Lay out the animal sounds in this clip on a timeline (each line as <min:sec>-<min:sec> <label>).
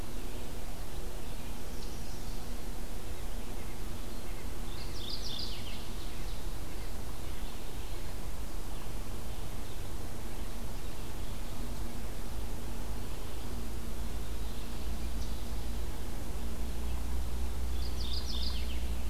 0:00.0-0:19.1 Red-eyed Vireo (Vireo olivaceus)
0:03.5-0:07.5 White-breasted Nuthatch (Sitta carolinensis)
0:04.7-0:05.9 Mourning Warbler (Geothlypis philadelphia)
0:13.3-0:14.9 Eastern Wood-Pewee (Contopus virens)
0:17.6-0:18.9 Mourning Warbler (Geothlypis philadelphia)